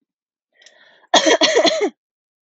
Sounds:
Cough